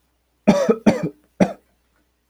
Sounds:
Cough